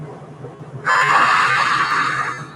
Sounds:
Sigh